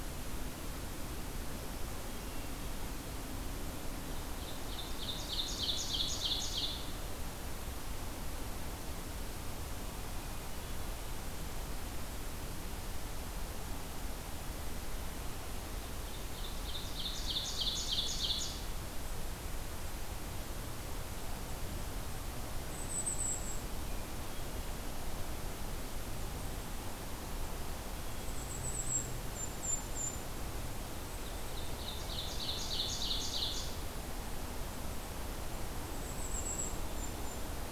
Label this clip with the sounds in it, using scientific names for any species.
Seiurus aurocapilla, Regulus satrapa